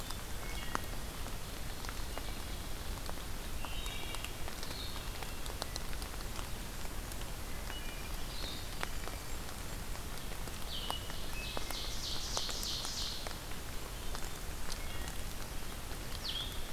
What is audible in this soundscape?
Wood Thrush, Ovenbird, Blue-headed Vireo, Blackburnian Warbler